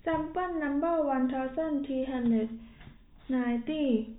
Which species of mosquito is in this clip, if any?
no mosquito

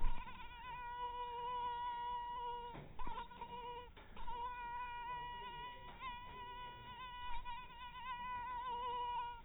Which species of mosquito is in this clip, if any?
mosquito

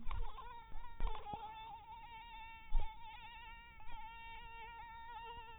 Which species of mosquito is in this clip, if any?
mosquito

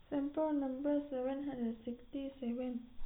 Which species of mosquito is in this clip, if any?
no mosquito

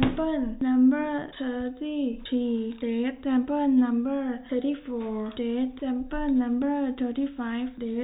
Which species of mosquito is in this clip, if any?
mosquito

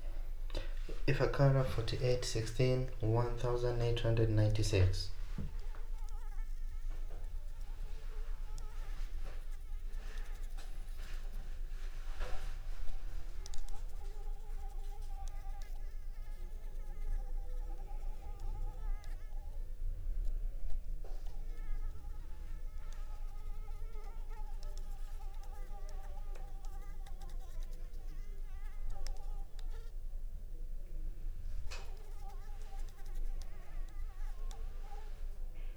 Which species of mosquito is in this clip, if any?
Anopheles arabiensis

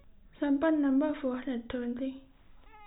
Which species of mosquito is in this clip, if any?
no mosquito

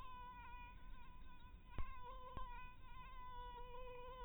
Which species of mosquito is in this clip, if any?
mosquito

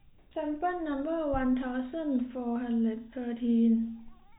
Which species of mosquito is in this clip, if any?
no mosquito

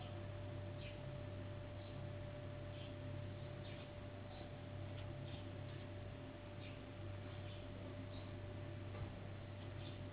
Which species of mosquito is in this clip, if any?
Anopheles gambiae s.s.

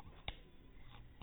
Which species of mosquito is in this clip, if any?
mosquito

